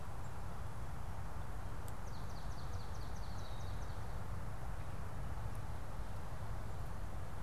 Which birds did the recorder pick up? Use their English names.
Swamp Sparrow, Red-winged Blackbird